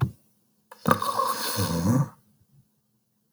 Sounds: Sniff